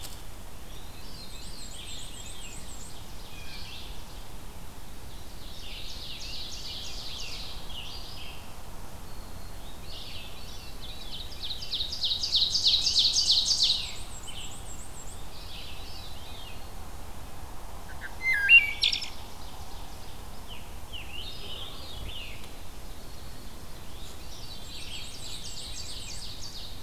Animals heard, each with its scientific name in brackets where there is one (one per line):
Red-eyed Vireo (Vireo olivaceus)
Blue Jay (Cyanocitta cristata)
Ovenbird (Seiurus aurocapilla)
Black-and-white Warbler (Mniotilta varia)
Black-throated Green Warbler (Setophaga virens)
Scarlet Tanager (Piranga olivacea)
Wood Thrush (Hylocichla mustelina)
Veery (Catharus fuscescens)